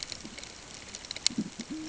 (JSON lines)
{"label": "ambient", "recorder": "HydroMoth"}